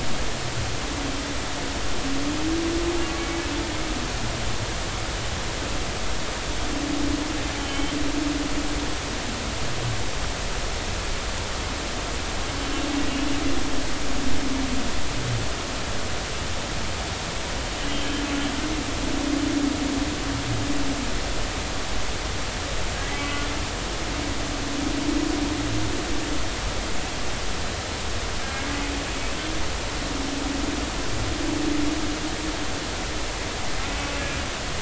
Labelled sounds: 7.6	8.0	humpback whale, 3.0 to 3.2 kHz
17.9	18.2	humpback whale, 3.0 to 3.2 kHz
28.4	28.7	humpback whale, 1.6 to 1.7 kHz

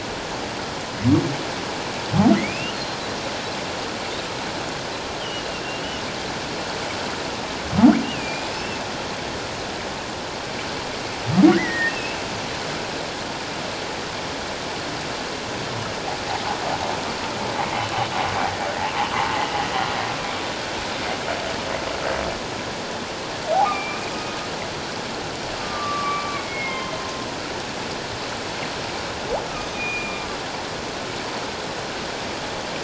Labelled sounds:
2.3	3.0	humpback whale, 1.8 to 4.3 kHz
5.2	6.0	humpback whale, 2.6 to 3.2 kHz
8.0	8.8	humpback whale, 2.3 to 5.5 kHz
11.5	12.2	humpback whale, 1.4 to 2.9 kHz
23.6	24.1	humpback whale, 2.2 to 2.6 kHz
25.6	27.3	humpback whale, 0.97 to 2.2 kHz
29.6	30.3	humpback whale, 2.3 to 6.2 kHz

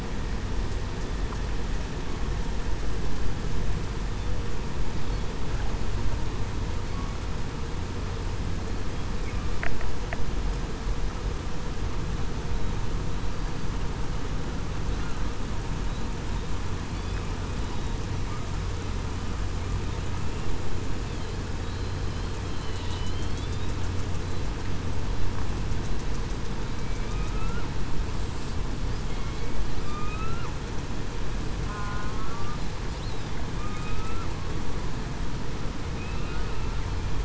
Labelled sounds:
23.1	23.5	killer whale, southern resident, 3.1 to 3.4 kHz
27.3	27.6	killer whale, southern resident, 1.3 to 1.5 kHz
29.8	30.3	killer whale, southern resident, 2.3 to 2.7 kHz
31.6	32.3	killer whale, southern resident, 1.0 to 1.5 kHz
33.6	34.2	killer whale, southern resident, 1.2 to 2.7 kHz
36.0	36.4	killer whale, southern resident, 2.5 to 2.8 kHz

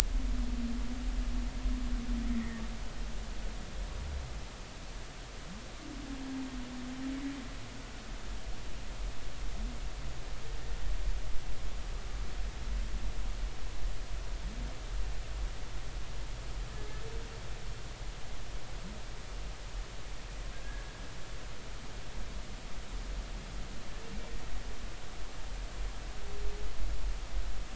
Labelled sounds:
2.3	2.6	humpback whale, 1.7 to 2.2 kHz
20.6	20.9	humpback whale, 1.6 to 1.7 kHz

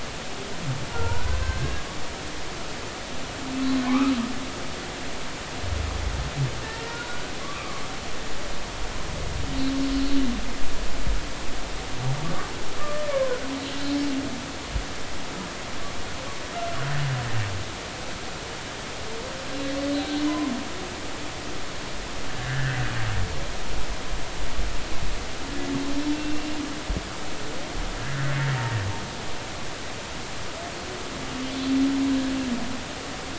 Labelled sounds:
0.9	1.8	humpback whale, 1.3 to 1.7 kHz
3.8	4.1	humpback whale, 0.96 to 1.4 kHz
6.8	7.8	humpback whale, 1.0 to 1.5 kHz
9.9	10.2	humpback whale, 4.3 to 4.5 kHz
12.8	13.4	humpback whale, 0.99 to 1.2 kHz
19.9	20.5	humpback whale, 0.96 to 4.2 kHz
22.3	22.8	humpback whale, 1.4 to 2.0 kHz
26.1	26.5	humpback whale, 2.7 to 2.8 kHz
28.0	28.3	humpback whale, 1.6 to 1.8 kHz

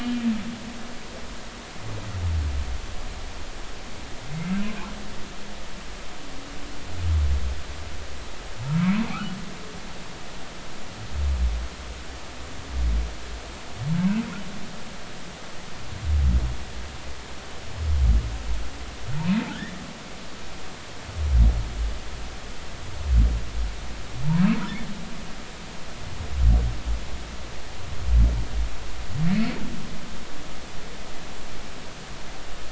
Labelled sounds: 19.2	19.7	humpback whale, 1.3 to 2.6 kHz
29.3	29.6	humpback whale, 4.4 to 4.5 kHz

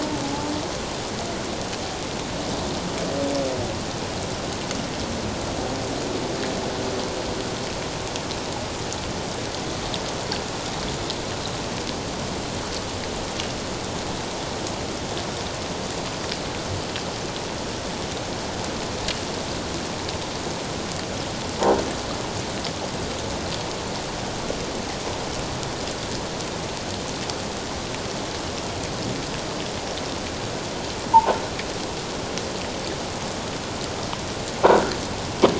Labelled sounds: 31.1	31.4	croaking sound likely from a nearby submerged object, 0.78 to 1.1 kHz

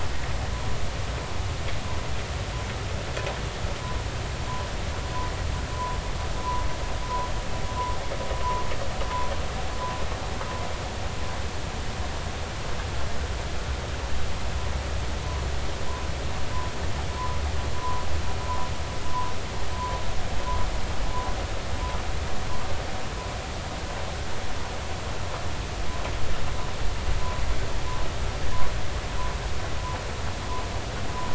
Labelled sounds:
5.7	6.0	humpback whale, 0.93 to 1.1 kHz
17.8	18.0	humpback whale, 0.93 to 1.1 kHz

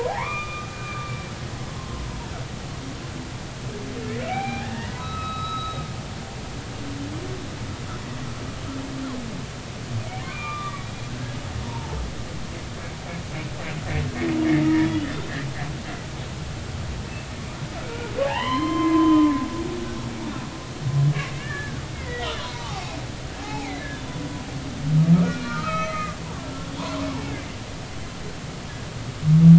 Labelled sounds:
0.1	1.3	humpback whale, 0.80 to 2.5 kHz
1.7	2.0	humpback whale, 1.0 to 1.1 kHz
4.2	5.9	humpback whale, 0.80 to 4.0 kHz
10.2	12.0	humpback whale, 0.83 to 3.6 kHz
14.6	15.3	humpback whale, 1.7 to 3.7 kHz
17.8	19.3	humpback whale, 0.80 to 4.3 kHz
21.3	24.2	humpback whale, 0.80 to 3.9 kHz
25.2	26.7	humpback whale, 1.1 to 3.2 kHz

